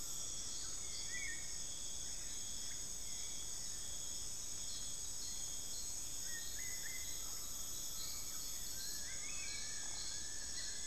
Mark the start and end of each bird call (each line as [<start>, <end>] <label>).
[0.00, 10.86] Black-billed Thrush (Turdus ignobilis)
[0.00, 10.86] Buckley's Forest-Falcon (Micrastur buckleyi)
[8.61, 10.86] Long-billed Woodcreeper (Nasica longirostris)